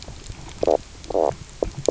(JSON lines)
{"label": "biophony, knock croak", "recorder": "SoundTrap 300"}